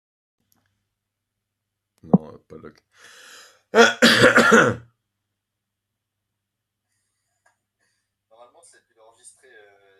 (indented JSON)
{
  "expert_labels": [
    {
      "quality": "good",
      "cough_type": "dry",
      "dyspnea": false,
      "wheezing": false,
      "stridor": false,
      "choking": false,
      "congestion": false,
      "nothing": true,
      "diagnosis": "healthy cough",
      "severity": "pseudocough/healthy cough"
    }
  ],
  "age": 38,
  "gender": "male",
  "respiratory_condition": false,
  "fever_muscle_pain": false,
  "status": "symptomatic"
}